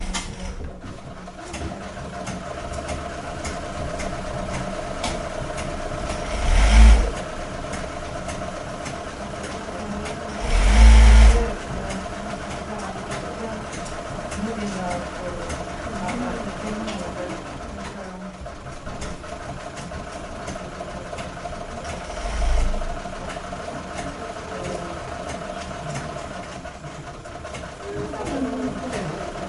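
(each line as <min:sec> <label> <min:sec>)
0:00.0 A sewing machine whirrs continuously. 0:29.5
0:06.3 A sewing machine clanks loudly for a brief moment. 0:07.3
0:10.3 A sewing machine clanks loudly for a brief moment. 0:11.7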